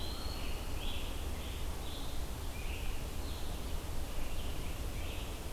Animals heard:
Eastern Wood-Pewee (Contopus virens), Scarlet Tanager (Piranga olivacea), Red-eyed Vireo (Vireo olivaceus)

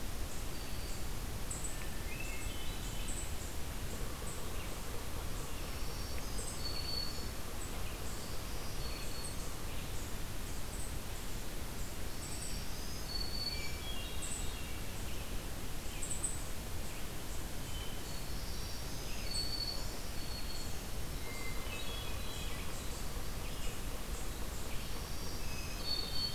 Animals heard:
Hermit Thrush (Catharus guttatus), Black-throated Green Warbler (Setophaga virens), Red-eyed Vireo (Vireo olivaceus), Yellow-bellied Sapsucker (Sphyrapicus varius), Eastern Chipmunk (Tamias striatus)

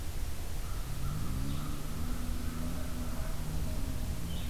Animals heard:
Blue-headed Vireo (Vireo solitarius), American Crow (Corvus brachyrhynchos)

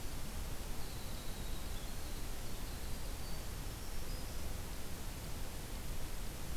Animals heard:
Winter Wren (Troglodytes hiemalis)

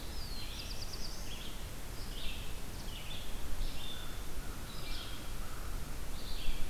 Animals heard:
Red-eyed Vireo (Vireo olivaceus), Black-throated Blue Warbler (Setophaga caerulescens), American Crow (Corvus brachyrhynchos)

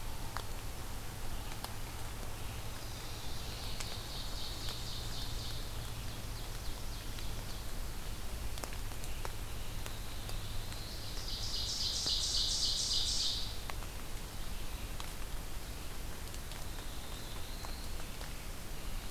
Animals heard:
Ovenbird (Seiurus aurocapilla), Black-throated Blue Warbler (Setophaga caerulescens)

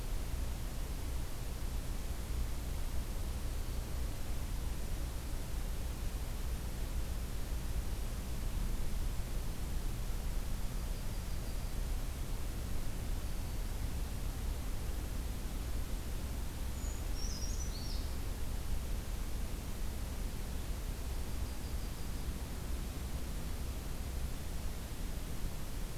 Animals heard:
Brown Creeper (Certhia americana), Yellow-rumped Warbler (Setophaga coronata), Black-throated Green Warbler (Setophaga virens)

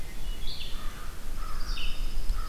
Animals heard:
Red-eyed Vireo (Vireo olivaceus), American Crow (Corvus brachyrhynchos), Wood Thrush (Hylocichla mustelina), Pine Warbler (Setophaga pinus)

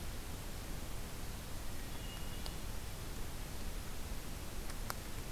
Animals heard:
Hermit Thrush (Catharus guttatus)

